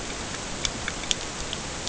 {"label": "ambient", "recorder": "HydroMoth"}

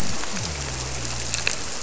{"label": "biophony", "recorder": "SoundTrap 300"}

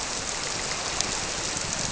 {"label": "biophony", "recorder": "SoundTrap 300"}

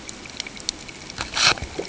{"label": "ambient", "recorder": "HydroMoth"}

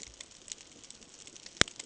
{"label": "ambient", "recorder": "HydroMoth"}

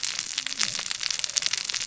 {"label": "biophony, cascading saw", "recorder": "SoundTrap 600 or HydroMoth"}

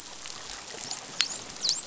{"label": "biophony, dolphin", "recorder": "SoundTrap 500"}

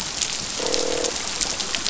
{"label": "biophony, croak", "recorder": "SoundTrap 500"}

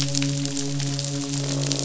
{"label": "biophony, midshipman", "recorder": "SoundTrap 500"}
{"label": "biophony, croak", "recorder": "SoundTrap 500"}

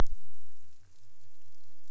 {"label": "biophony", "recorder": "SoundTrap 300"}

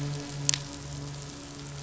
{"label": "anthrophony, boat engine", "recorder": "SoundTrap 500"}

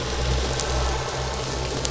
{"label": "biophony", "recorder": "SoundTrap 300"}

